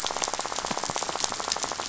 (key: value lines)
label: biophony, rattle
recorder: SoundTrap 500